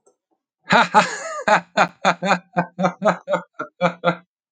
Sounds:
Laughter